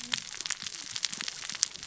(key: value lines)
label: biophony, cascading saw
recorder: SoundTrap 600 or HydroMoth